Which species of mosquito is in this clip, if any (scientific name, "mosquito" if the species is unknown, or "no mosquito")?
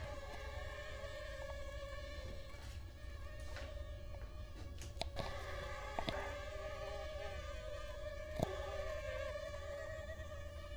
Culex quinquefasciatus